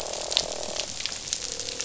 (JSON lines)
{"label": "biophony, croak", "recorder": "SoundTrap 500"}